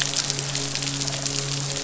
{"label": "biophony", "recorder": "SoundTrap 500"}
{"label": "biophony, midshipman", "recorder": "SoundTrap 500"}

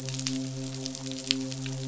{"label": "biophony, midshipman", "recorder": "SoundTrap 500"}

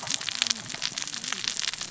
{"label": "biophony, cascading saw", "recorder": "SoundTrap 600 or HydroMoth"}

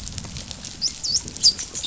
{"label": "biophony, dolphin", "recorder": "SoundTrap 500"}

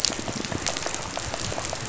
{"label": "biophony, rattle", "recorder": "SoundTrap 500"}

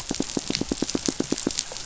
{"label": "biophony, pulse", "recorder": "SoundTrap 500"}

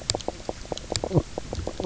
{"label": "biophony, knock croak", "recorder": "SoundTrap 300"}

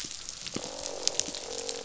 {"label": "biophony, croak", "recorder": "SoundTrap 500"}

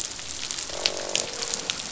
{"label": "biophony, croak", "recorder": "SoundTrap 500"}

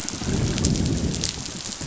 {"label": "biophony, growl", "recorder": "SoundTrap 500"}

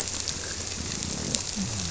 {"label": "biophony", "recorder": "SoundTrap 300"}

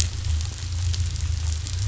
{"label": "anthrophony, boat engine", "recorder": "SoundTrap 500"}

